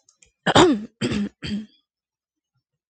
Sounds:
Throat clearing